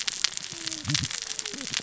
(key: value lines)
label: biophony, cascading saw
recorder: SoundTrap 600 or HydroMoth